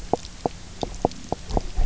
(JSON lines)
{"label": "biophony, knock croak", "recorder": "SoundTrap 300"}